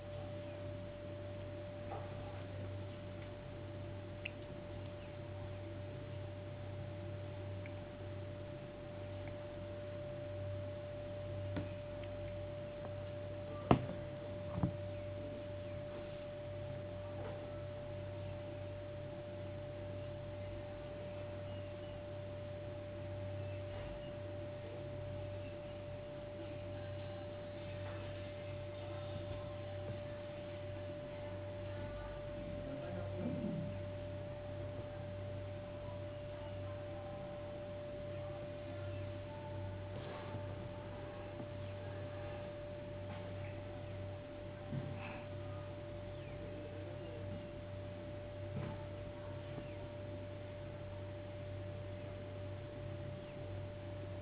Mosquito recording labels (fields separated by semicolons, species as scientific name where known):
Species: no mosquito; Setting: insect culture